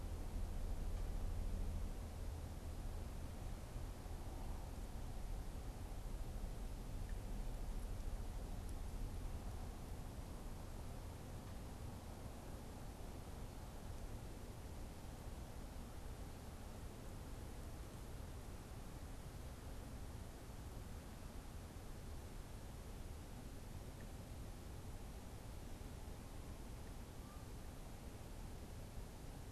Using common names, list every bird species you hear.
Canada Goose